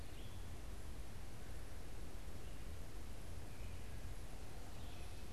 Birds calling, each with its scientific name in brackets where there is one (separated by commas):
Wood Thrush (Hylocichla mustelina), Red-eyed Vireo (Vireo olivaceus)